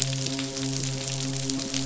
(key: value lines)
label: biophony, midshipman
recorder: SoundTrap 500